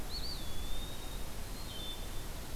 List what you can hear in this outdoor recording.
Eastern Wood-Pewee, Wood Thrush